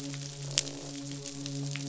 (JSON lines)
{"label": "biophony, midshipman", "recorder": "SoundTrap 500"}
{"label": "biophony, croak", "recorder": "SoundTrap 500"}